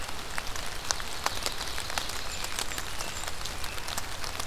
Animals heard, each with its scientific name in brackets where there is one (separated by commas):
American Robin (Turdus migratorius), Blackburnian Warbler (Setophaga fusca), Ovenbird (Seiurus aurocapilla)